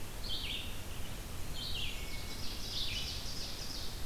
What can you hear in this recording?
Red-eyed Vireo, Ovenbird